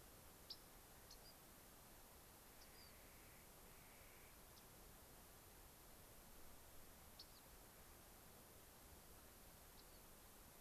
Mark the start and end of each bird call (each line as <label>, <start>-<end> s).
Rock Wren (Salpinctes obsoletus), 0.4-0.6 s
Rock Wren (Salpinctes obsoletus), 1.0-1.4 s
Clark's Nutcracker (Nucifraga columbiana), 2.4-4.4 s
Rock Wren (Salpinctes obsoletus), 2.5-3.0 s
Rock Wren (Salpinctes obsoletus), 4.4-4.7 s
Rock Wren (Salpinctes obsoletus), 7.1-7.5 s
Rock Wren (Salpinctes obsoletus), 9.7-10.0 s